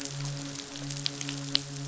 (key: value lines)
label: biophony, midshipman
recorder: SoundTrap 500